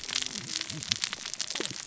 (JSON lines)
{"label": "biophony, cascading saw", "recorder": "SoundTrap 600 or HydroMoth"}